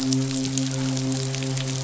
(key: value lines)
label: biophony, midshipman
recorder: SoundTrap 500